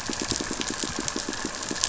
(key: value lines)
label: biophony, pulse
recorder: SoundTrap 500

label: anthrophony, boat engine
recorder: SoundTrap 500